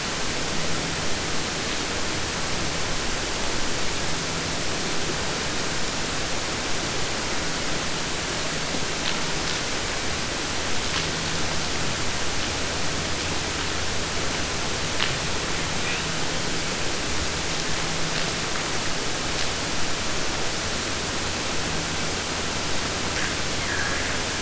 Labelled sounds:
23.6	24.4	killer whale, 0.50 to 3.0 kHz

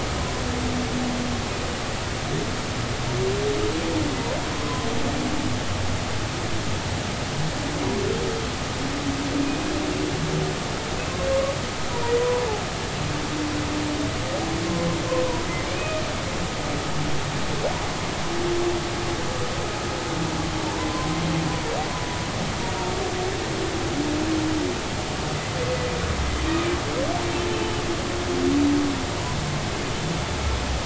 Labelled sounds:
4.5	4.9	humpback whale, 0.96 to 1.1 kHz
12.2	12.4	humpback whale, 0.86 to 1.0 kHz
15.8	16.0	humpback whale, 2.4 to 2.6 kHz

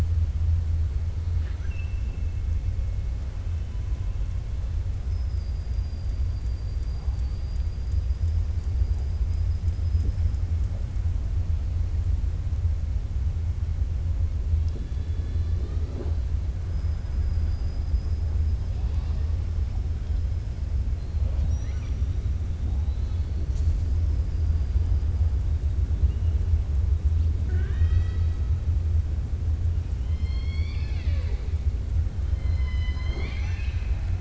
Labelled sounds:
1.3	1.9	killer whale, 1.3 to 2.9 kHz
7.7	8.5	killer whale, 4.8 to 7.5 kHz
21.3	22.0	killer whale, 1.2 to 5.9 kHz
27.4	28.3	killer whale, 0.38 to 5.9 kHz
30.0	31.4	killer whale, 0.55 to 5.6 kHz
32.4	34.1	killer whale, 0.43 to 6.3 kHz

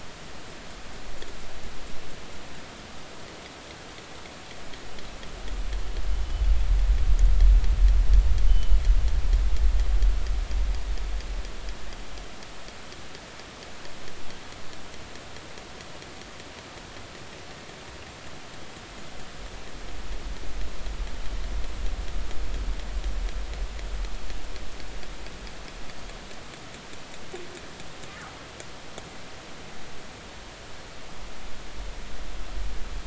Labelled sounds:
8.5	8.8	killer whale, northern resident, G clan, 2.8 to 3.1 kHz

